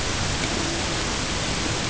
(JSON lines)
{"label": "ambient", "recorder": "HydroMoth"}